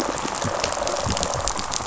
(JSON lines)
{"label": "biophony, rattle response", "recorder": "SoundTrap 500"}